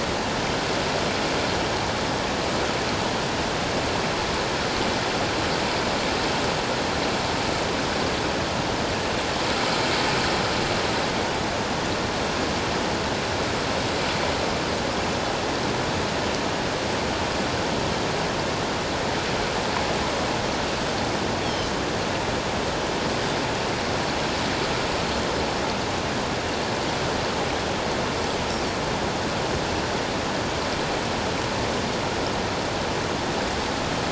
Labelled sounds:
21.4	21.7	Pacific white-sided dolphin, 3.0 to 5.5 kHz

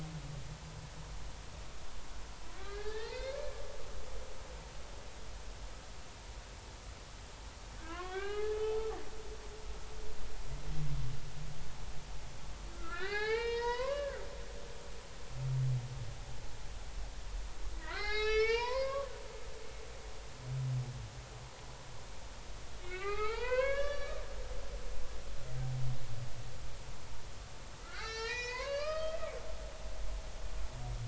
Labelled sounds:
2.6	3.6	humpback whale, 0.83 to 3.8 kHz
7.8	8.9	humpback whale, 0.80 to 3.7 kHz
12.7	14.2	humpback whale, 0.80 to 5.4 kHz
17.7	19.8	humpback whale, 0.80 to 6.0 kHz
22.8	24.2	humpback whale, 0.80 to 5.8 kHz
27.8	29.3	humpback whale, 0.86 to 6.8 kHz

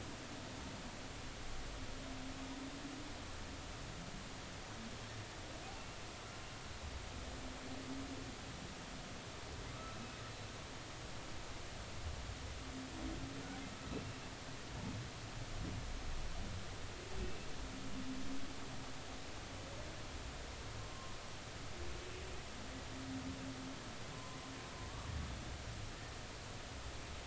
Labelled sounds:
20.8	21.2	humpback whale, 0.93 to 1.1 kHz
24.1	24.4	humpback whale, 0.96 to 1.1 kHz

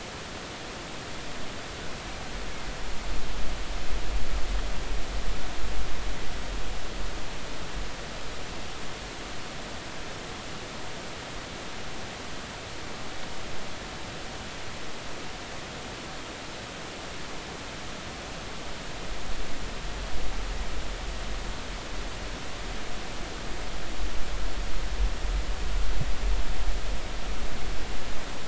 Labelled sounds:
2.5	2.8	killer whale, Bigg's (transient), 2.0 to 2.3 kHz

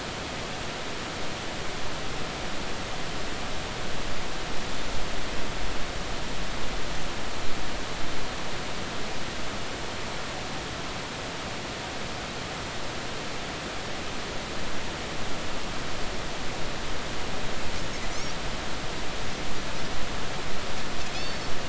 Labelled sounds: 21.2	21.4	Pacific white-sided dolphin, 4.2 to 4.6 kHz

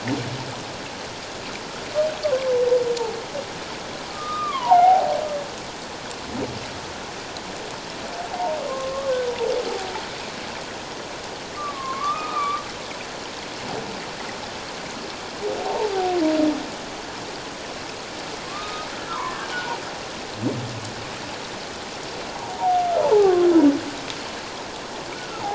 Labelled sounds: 4.1	5.1	humpback whale, 0.78 to 2.5 kHz
8.7	9.1	humpback whale, 1.0 to 1.2 kHz
11.5	12.6	humpback whale, 1.0 to 2.6 kHz
15.6	15.9	humpback whale, 0.78 to 1.1 kHz
18.4	19.4	humpback whale, 0.88 to 3.8 kHz
22.6	23.5	humpback whale, 0.78 to 1.3 kHz

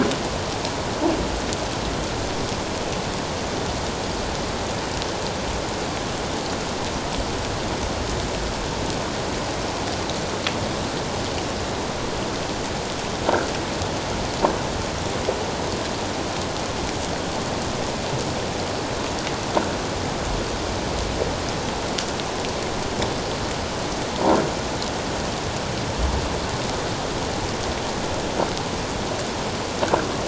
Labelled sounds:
24.1	24.4	croaking sound likely from a nearby submerged object, 0.81 to 1.0 kHz

